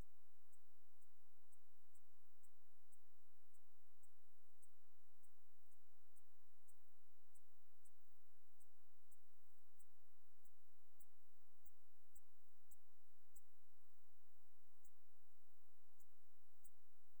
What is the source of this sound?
Eupholidoptera schmidti, an orthopteran